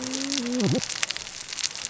{"label": "biophony, cascading saw", "recorder": "SoundTrap 600 or HydroMoth"}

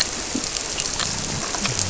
{"label": "biophony", "recorder": "SoundTrap 300"}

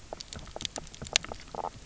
{"label": "biophony, knock croak", "recorder": "SoundTrap 300"}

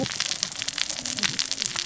{"label": "biophony, cascading saw", "recorder": "SoundTrap 600 or HydroMoth"}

